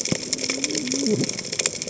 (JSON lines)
{"label": "biophony, cascading saw", "recorder": "HydroMoth"}